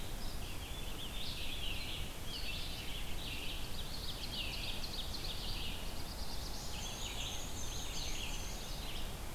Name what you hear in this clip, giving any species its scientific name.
Vireo olivaceus, Piranga olivacea, Seiurus aurocapilla, Setophaga caerulescens, Mniotilta varia